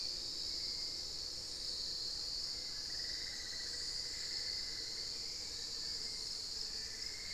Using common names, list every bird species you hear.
Hauxwell's Thrush, Spix's Guan, Cinnamon-throated Woodcreeper